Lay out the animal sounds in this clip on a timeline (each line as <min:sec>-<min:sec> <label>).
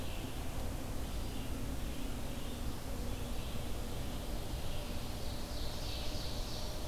0:00.0-0:06.9 Red-eyed Vireo (Vireo olivaceus)
0:05.2-0:06.9 Ovenbird (Seiurus aurocapilla)
0:06.3-0:06.9 Black-throated Green Warbler (Setophaga virens)